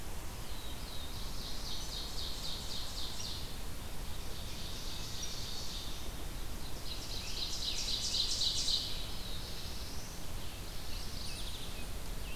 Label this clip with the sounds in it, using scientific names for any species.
Setophaga caerulescens, Seiurus aurocapilla, Vireo olivaceus, Piranga olivacea, Geothlypis philadelphia